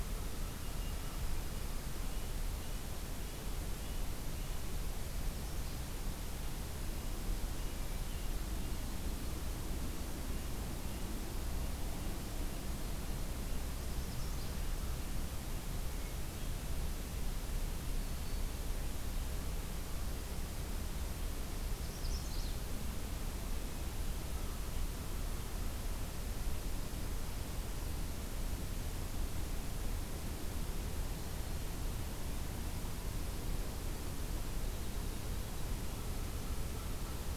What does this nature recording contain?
Red-breasted Nuthatch, Magnolia Warbler, Black-throated Green Warbler